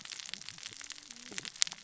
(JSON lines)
{"label": "biophony, cascading saw", "recorder": "SoundTrap 600 or HydroMoth"}